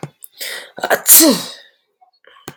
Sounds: Sneeze